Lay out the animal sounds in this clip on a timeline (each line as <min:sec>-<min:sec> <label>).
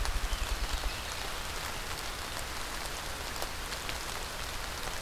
0:00.2-0:01.6 Mourning Warbler (Geothlypis philadelphia)